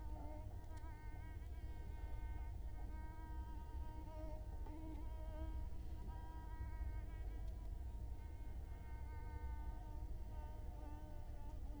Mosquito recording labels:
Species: Culex quinquefasciatus; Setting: cup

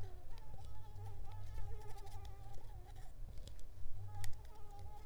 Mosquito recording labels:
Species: Anopheles ziemanni; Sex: female; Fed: unfed; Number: one; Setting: cup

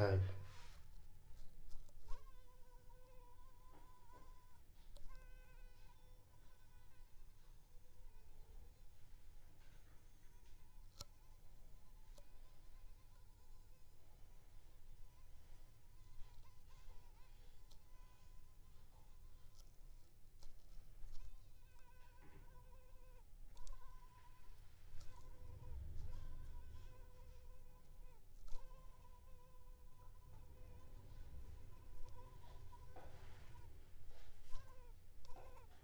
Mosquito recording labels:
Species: Culex pipiens complex; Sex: female; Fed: unfed; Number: one; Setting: cup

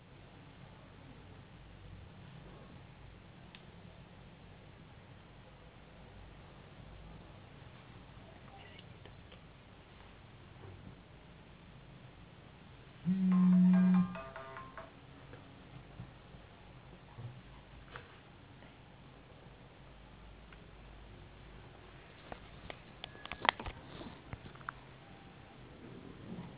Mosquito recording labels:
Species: no mosquito; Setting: insect culture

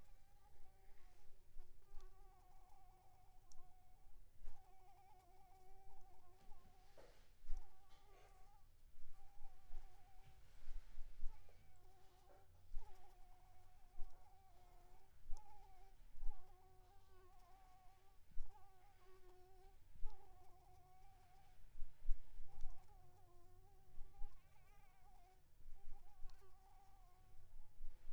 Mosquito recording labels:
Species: Anopheles arabiensis; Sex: female; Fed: unfed; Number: one; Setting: cup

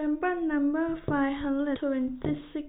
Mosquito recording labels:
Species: no mosquito; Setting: cup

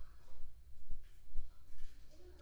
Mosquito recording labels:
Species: Aedes aegypti; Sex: female; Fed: unfed; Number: one; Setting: cup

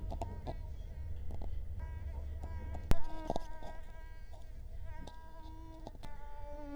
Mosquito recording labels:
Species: Culex quinquefasciatus; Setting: cup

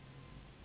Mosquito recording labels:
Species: Anopheles gambiae s.s.; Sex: female; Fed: unfed; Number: one; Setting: insect culture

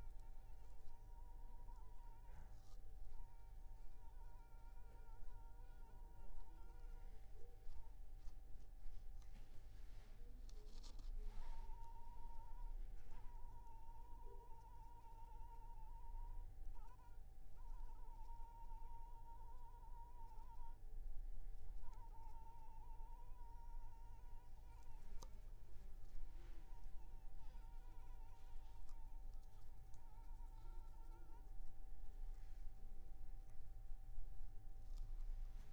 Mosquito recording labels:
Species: Anopheles arabiensis; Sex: female; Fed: unfed; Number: one; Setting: cup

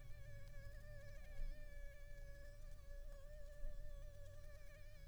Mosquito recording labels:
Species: Anopheles arabiensis; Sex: female; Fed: unfed; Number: one; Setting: cup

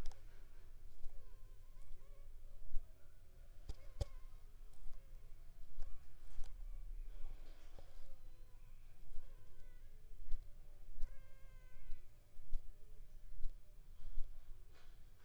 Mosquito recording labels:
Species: Anopheles funestus s.l.; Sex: female; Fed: unfed; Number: one; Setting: cup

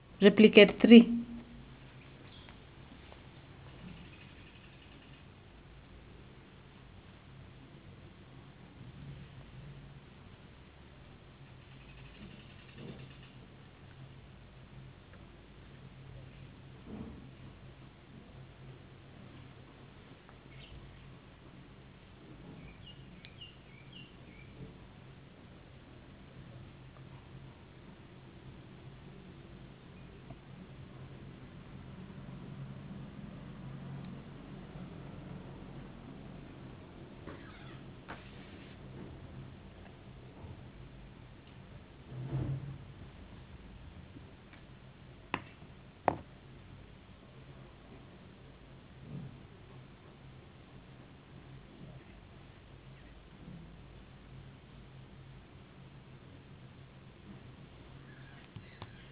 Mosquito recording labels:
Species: no mosquito; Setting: insect culture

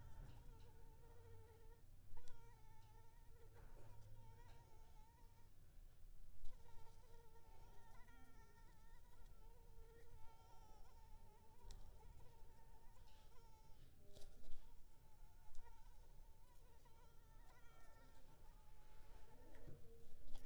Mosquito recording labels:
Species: Anopheles arabiensis; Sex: female; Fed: unfed; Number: one; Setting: cup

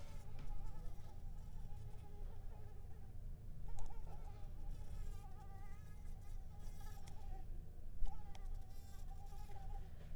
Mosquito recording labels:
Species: Mansonia uniformis; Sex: female; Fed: unfed; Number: one; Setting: cup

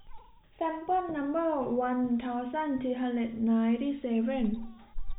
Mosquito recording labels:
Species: no mosquito; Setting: cup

